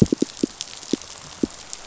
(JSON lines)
{"label": "biophony, pulse", "recorder": "SoundTrap 500"}